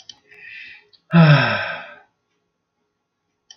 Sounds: Sigh